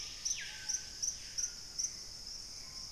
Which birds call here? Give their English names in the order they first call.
Black-faced Antthrush, Hauxwell's Thrush, Screaming Piha, Gray Antbird